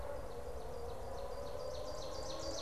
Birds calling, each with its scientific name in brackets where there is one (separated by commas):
Ovenbird (Seiurus aurocapilla)